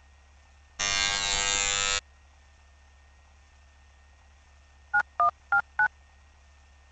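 At 0.79 seconds, an alarm is heard. Later, at 4.93 seconds, there is the sound of a telephone.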